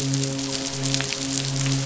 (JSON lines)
{"label": "biophony, midshipman", "recorder": "SoundTrap 500"}